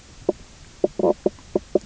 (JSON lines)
{"label": "biophony, knock croak", "recorder": "SoundTrap 300"}